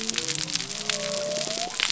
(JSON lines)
{"label": "biophony", "recorder": "SoundTrap 300"}